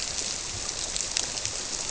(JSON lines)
{"label": "biophony", "recorder": "SoundTrap 300"}